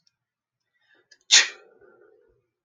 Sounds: Sneeze